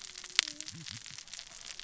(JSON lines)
{"label": "biophony, cascading saw", "recorder": "SoundTrap 600 or HydroMoth"}